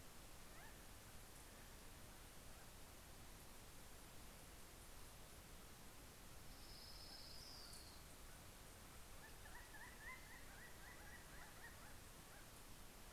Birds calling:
Orange-crowned Warbler (Leiothlypis celata)
Northern Flicker (Colaptes auratus)

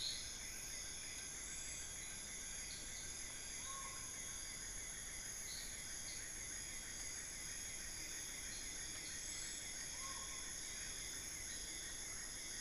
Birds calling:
Black-fronted Nunbird (Monasa nigrifrons)
Collared Forest-Falcon (Micrastur semitorquatus)

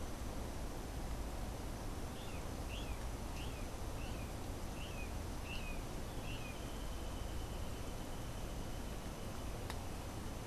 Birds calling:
Brown Jay (Psilorhinus morio)

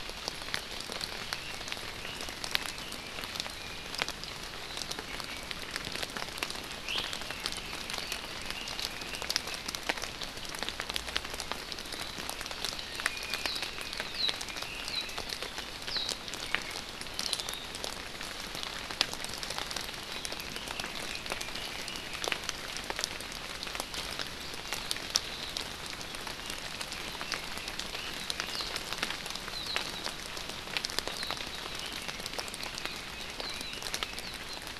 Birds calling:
Warbling White-eye (Zosterops japonicus)
Iiwi (Drepanis coccinea)
Red-billed Leiothrix (Leiothrix lutea)

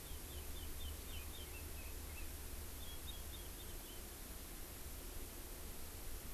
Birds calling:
Chinese Hwamei (Garrulax canorus)

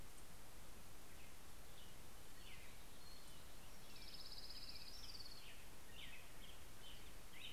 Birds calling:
American Robin (Turdus migratorius)
Orange-crowned Warbler (Leiothlypis celata)

